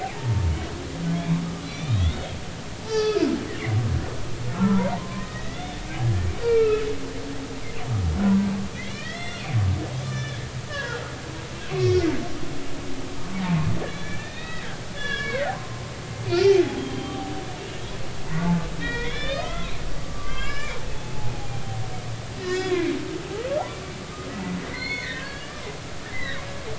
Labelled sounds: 0.0	1.4	humpback whale, 0.80 to 3.8 kHz
1.7	2.3	humpback whale, 2.2 to 6.0 kHz
2.8	3.3	humpback whale, 0.80 to 5.9 kHz
4.5	6.9	humpback whale, 0.86 to 3.9 kHz
8.8	9.4	humpback whale, 1.6 to 5.7 kHz
10.0	11.0	humpback whale, 0.86 to 3.6 kHz
11.7	12.1	humpback whale, 1.0 to 5.6 kHz
13.9	15.8	humpback whale, 0.96 to 5.2 kHz
16.3	17.3	humpback whale, 2.3 to 3.4 kHz
18.8	20.8	humpback whale, 1.0 to 4.4 kHz
22.4	23.0	humpback whale, 1.4 to 5.3 kHz
24.7	25.6	humpback whale, 1.0 to 4.4 kHz
26.0	26.4	humpback whale, 1.5 to 2.1 kHz

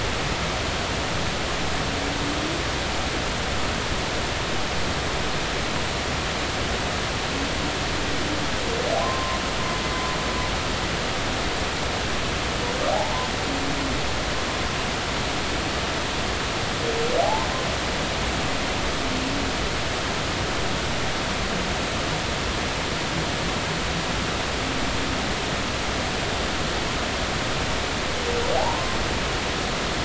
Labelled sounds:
9.0	9.4	humpback whale, 0.96 to 1.1 kHz
12.9	13.3	humpback whale, 0.80 to 1.1 kHz
17.2	17.5	humpback whale, 0.80 to 1.1 kHz
28.6	28.8	humpback whale, 0.80 to 1.1 kHz

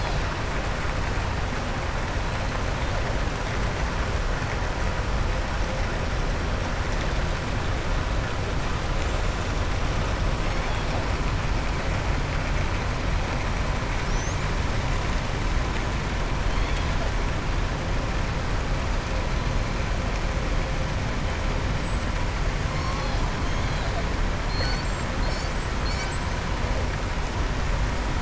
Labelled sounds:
24.4	25.1	killer whale, southern resident, 4.1 to 7.9 kHz

